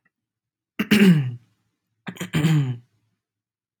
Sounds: Throat clearing